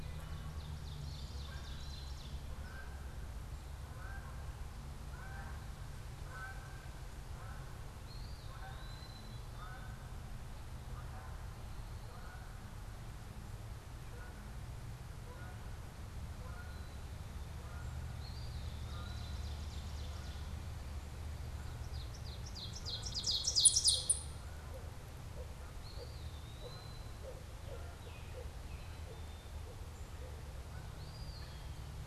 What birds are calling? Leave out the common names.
Seiurus aurocapilla, Branta canadensis, Contopus virens, Icterus galbula, Poecile atricapillus